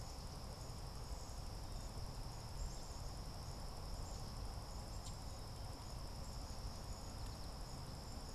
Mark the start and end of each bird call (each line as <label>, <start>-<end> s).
Black-capped Chickadee (Poecile atricapillus), 0.0-8.3 s
Common Yellowthroat (Geothlypis trichas), 4.9-5.2 s